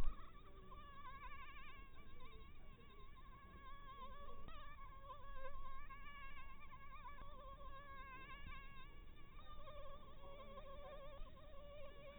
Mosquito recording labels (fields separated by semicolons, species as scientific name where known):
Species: Anopheles harrisoni; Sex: female; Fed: blood-fed; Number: one; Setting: cup